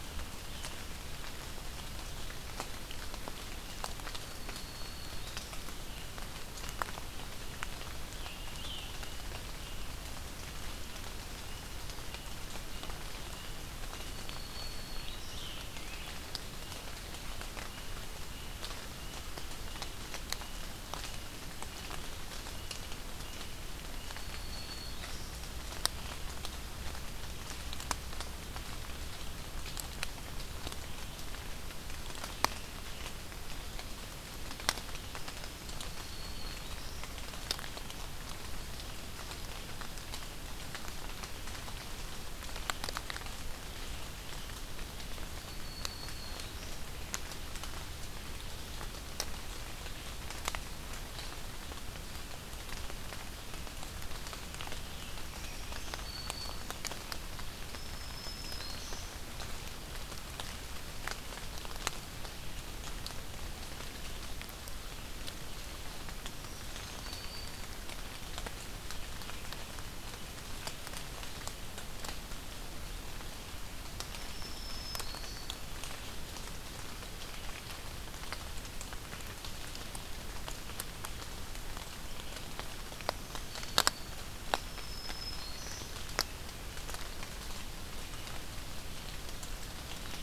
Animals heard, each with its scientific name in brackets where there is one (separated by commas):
Black-throated Green Warbler (Setophaga virens), Scarlet Tanager (Piranga olivacea)